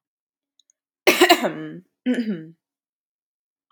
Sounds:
Throat clearing